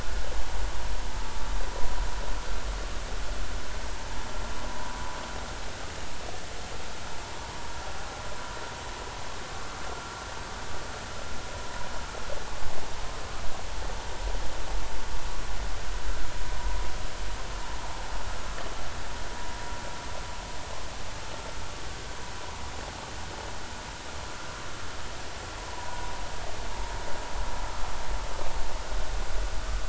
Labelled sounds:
4.7	4.9	vessel noise, 0.90 to 1.0 kHz
25.7	26.0	vessel noise, 0.90 to 1.0 kHz

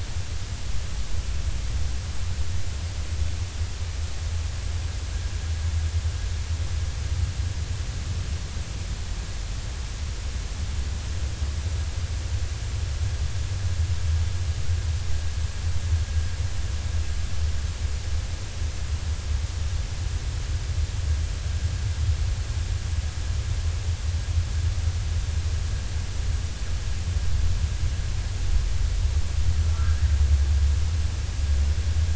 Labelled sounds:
29.6	30.0	humpback whale, 1.2 to 1.7 kHz

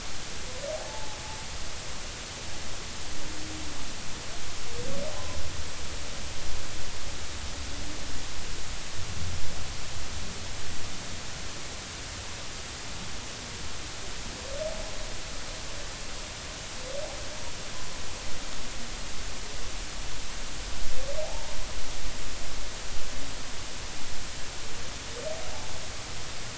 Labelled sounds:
0.7	1.2	humpback whale, 0.80 to 0.93 kHz
21.2	21.5	humpback whale, 0.80 to 1.1 kHz

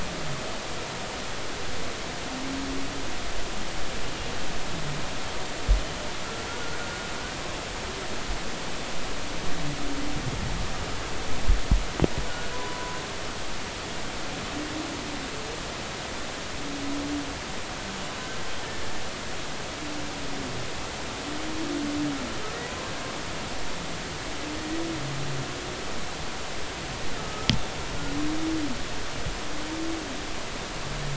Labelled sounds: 6.5	6.8	humpback whale, 1.3 to 1.5 kHz
12.3	13.0	humpback whale, 0.93 to 1.5 kHz
24.6	24.8	humpback whale, 1.8 to 2.0 kHz
27.2	27.5	humpback whale, 1.2 to 1.3 kHz

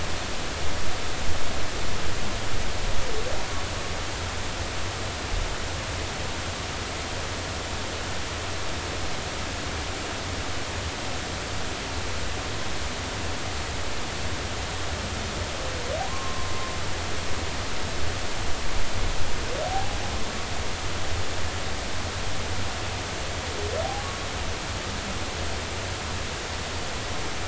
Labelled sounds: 16.1	16.5	humpback whale, 0.93 to 1.1 kHz
19.7	20.0	humpback whale, 0.80 to 0.86 kHz

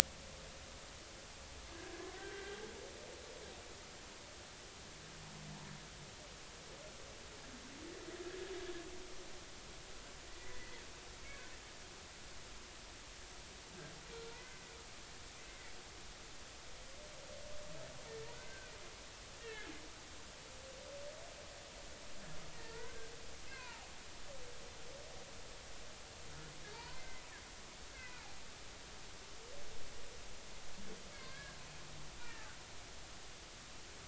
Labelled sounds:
2.1	2.6	humpback whale, 1.5 to 1.7 kHz
10.4	10.8	humpback whale, 1.8 to 2.1 kHz
14.3	14.6	humpback whale, 1.9 to 2.1 kHz
18.3	18.7	humpback whale, 1.4 to 1.6 kHz
19.4	19.7	humpback whale, 1.6 to 1.9 kHz
22.5	23.9	humpback whale, 0.80 to 2.8 kHz
26.7	27.2	humpback whale, 0.80 to 2.1 kHz
27.9	28.2	humpback whale, 1.9 to 2.7 kHz
31.1	31.6	humpback whale, 1.5 to 2.3 kHz

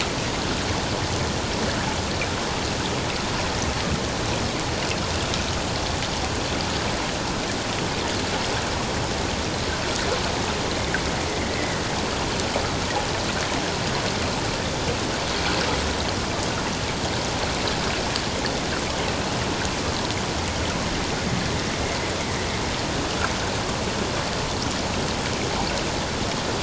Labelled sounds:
11.5	11.8	fish, 1.8 to 2.2 kHz

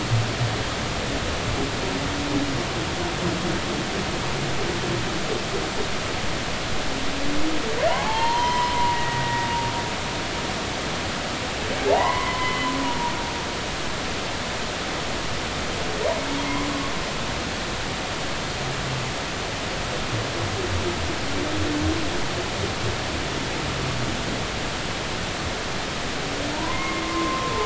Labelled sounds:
7.9	9.5	humpback whale, 0.80 to 5.3 kHz
11.8	13.1	humpback whale, 0.80 to 3.1 kHz
26.5	27.6	humpback whale, 0.86 to 2.2 kHz

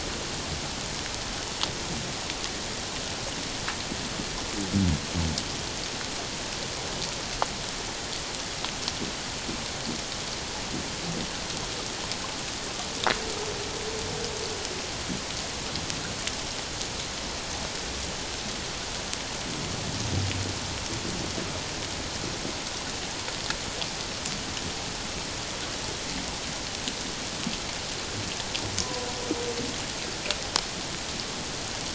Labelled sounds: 28.8	29.1	humpback whale, 0.94 to 1.1 kHz

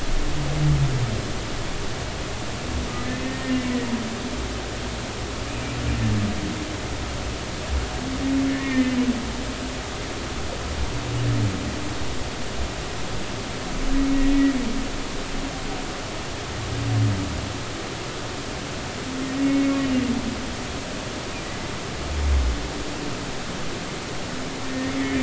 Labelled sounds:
3.2	3.6	humpback whale, 1.7 to 1.9 kHz
8.5	9.0	humpback whale, 1.7 to 2.2 kHz
19.4	19.8	humpback whale, 2.1 to 2.3 kHz
24.6	24.9	humpback whale, 1.8 to 1.9 kHz

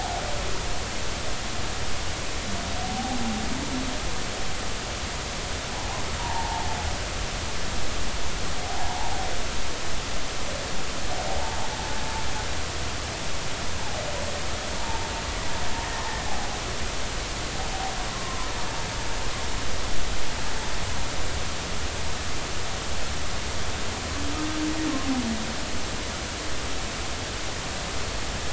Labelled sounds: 5.7	6.7	humpback whale, 0.80 to 1.1 kHz
8.6	9.1	humpback whale, 0.80 to 0.99 kHz
18.1	18.5	humpback whale, 0.93 to 1.1 kHz

